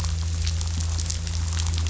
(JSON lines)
{"label": "anthrophony, boat engine", "recorder": "SoundTrap 500"}